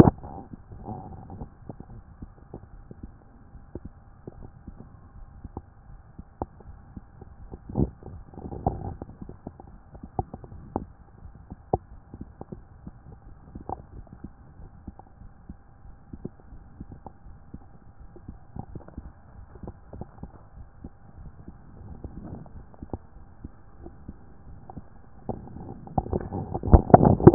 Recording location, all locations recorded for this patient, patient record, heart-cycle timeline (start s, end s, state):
aortic valve (AV)
aortic valve (AV)+pulmonary valve (PV)+tricuspid valve (TV)+mitral valve (MV)
#Age: Child
#Sex: Male
#Height: 144.0 cm
#Weight: 44.8 kg
#Pregnancy status: False
#Murmur: Absent
#Murmur locations: nan
#Most audible location: nan
#Systolic murmur timing: nan
#Systolic murmur shape: nan
#Systolic murmur grading: nan
#Systolic murmur pitch: nan
#Systolic murmur quality: nan
#Diastolic murmur timing: nan
#Diastolic murmur shape: nan
#Diastolic murmur grading: nan
#Diastolic murmur pitch: nan
#Diastolic murmur quality: nan
#Outcome: Normal
#Campaign: 2014 screening campaign
0.00	13.93	unannotated
13.93	14.08	S1
14.08	14.23	systole
14.23	14.28	S2
14.28	14.60	diastole
14.60	14.70	S1
14.70	14.88	systole
14.88	14.94	S2
14.94	15.20	diastole
15.20	15.32	S1
15.32	15.50	systole
15.50	15.56	S2
15.56	15.86	diastole
15.86	15.96	S1
15.96	16.12	systole
16.12	16.18	S2
16.18	16.52	diastole
16.52	16.62	S1
16.62	16.80	systole
16.80	16.88	S2
16.88	17.26	diastole
17.26	17.38	S1
17.38	17.54	systole
17.54	17.62	S2
17.62	18.00	diastole
18.00	27.34	unannotated